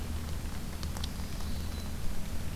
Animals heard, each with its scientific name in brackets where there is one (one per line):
Black-throated Green Warbler (Setophaga virens)